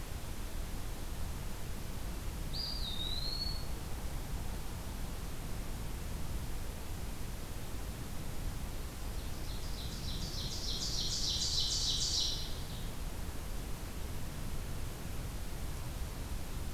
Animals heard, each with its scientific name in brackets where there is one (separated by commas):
Ovenbird (Seiurus aurocapilla), Eastern Wood-Pewee (Contopus virens)